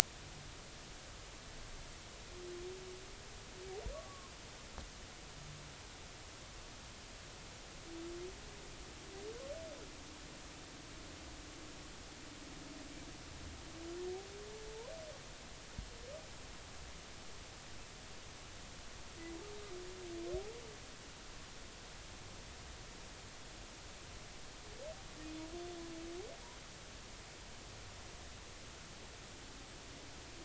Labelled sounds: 3.9	4.3	humpback whale, 0.99 to 1.2 kHz

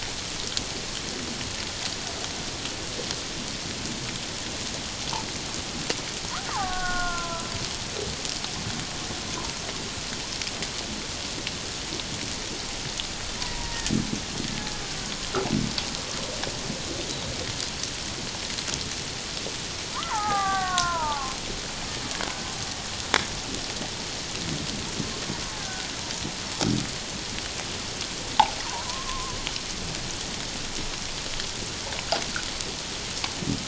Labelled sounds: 6.5	7.5	killer whale, Bigg's (transient), 0.78 to 1.6 kHz
13.5	13.8	killer whale, Bigg's (transient), 0.91 to 1.0 kHz
19.9	21.4	killer whale, Bigg's (transient), 0.78 to 2.0 kHz
25.5	25.9	killer whale, Bigg's (transient), 0.78 to 1.7 kHz
28.7	29.4	killer whale, Bigg's (transient), 0.78 to 1.2 kHz

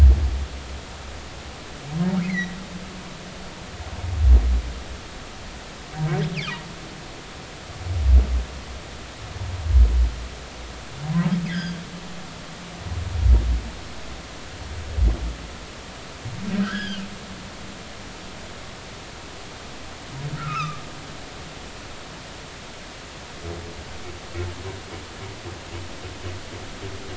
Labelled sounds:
2.2	2.6	humpback whale, 1.8 to 2.3 kHz
11.4	11.8	humpback whale, 1.5 to 3.6 kHz
16.5	17.0	humpback whale, 1.2 to 3.5 kHz
20.4	20.8	humpback whale, 1.1 to 2.7 kHz

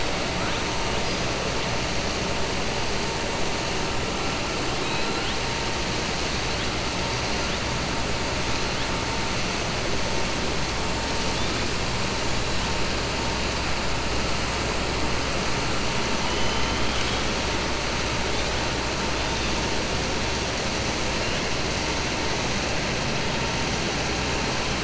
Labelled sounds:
16.2	17.3	killer whale, southern resident, 2.0 to 3.9 kHz

